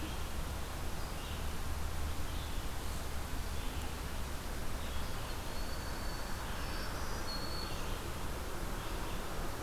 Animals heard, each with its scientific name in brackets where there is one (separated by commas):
Red-eyed Vireo (Vireo olivaceus), Black-throated Green Warbler (Setophaga virens), Broad-winged Hawk (Buteo platypterus)